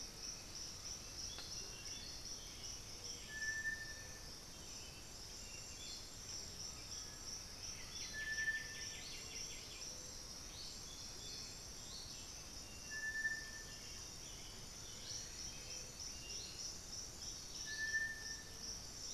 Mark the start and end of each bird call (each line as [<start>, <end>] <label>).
[0.00, 10.85] Black-billed Thrush (Turdus ignobilis)
[0.00, 19.14] Striped Cuckoo (Tapera naevia)
[6.65, 8.65] Undulated Tinamou (Crypturellus undulatus)
[7.45, 10.05] White-winged Becard (Pachyramphus polychopterus)
[14.35, 15.55] unidentified bird